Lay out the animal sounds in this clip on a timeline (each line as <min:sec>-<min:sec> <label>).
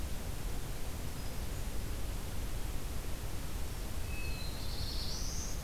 0:03.9-0:04.8 Hermit Thrush (Catharus guttatus)
0:04.0-0:05.6 Black-throated Blue Warbler (Setophaga caerulescens)